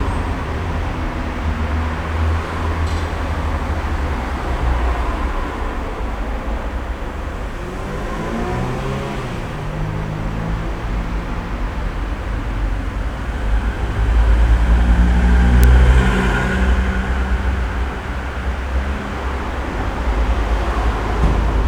Is this indoors?
no